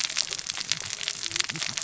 {"label": "biophony, cascading saw", "recorder": "SoundTrap 600 or HydroMoth"}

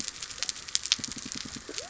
{"label": "biophony", "recorder": "SoundTrap 300"}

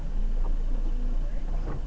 {"label": "anthrophony, boat engine", "recorder": "SoundTrap 300"}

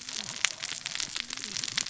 {"label": "biophony, cascading saw", "recorder": "SoundTrap 600 or HydroMoth"}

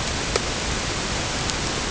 {"label": "ambient", "recorder": "HydroMoth"}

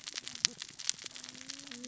{"label": "biophony, cascading saw", "recorder": "SoundTrap 600 or HydroMoth"}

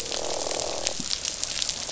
{"label": "biophony, croak", "recorder": "SoundTrap 500"}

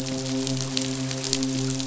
{"label": "biophony, midshipman", "recorder": "SoundTrap 500"}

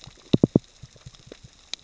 {"label": "biophony, knock", "recorder": "SoundTrap 600 or HydroMoth"}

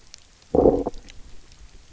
{"label": "biophony, low growl", "recorder": "SoundTrap 300"}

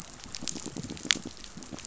{"label": "biophony, pulse", "recorder": "SoundTrap 500"}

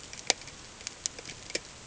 {"label": "ambient", "recorder": "HydroMoth"}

